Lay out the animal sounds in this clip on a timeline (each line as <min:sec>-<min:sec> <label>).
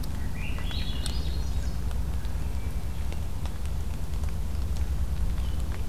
0:00.0-0:01.9 Swainson's Thrush (Catharus ustulatus)